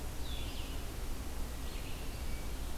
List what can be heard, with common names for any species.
Red-eyed Vireo, Wood Thrush